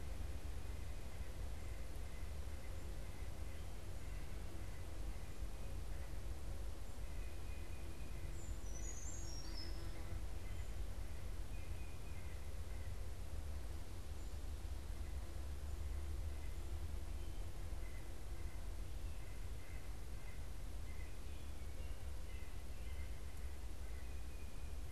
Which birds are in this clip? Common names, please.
White-breasted Nuthatch, Brown Creeper, Tufted Titmouse